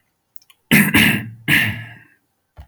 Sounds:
Throat clearing